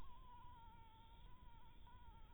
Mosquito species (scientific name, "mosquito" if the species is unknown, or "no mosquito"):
mosquito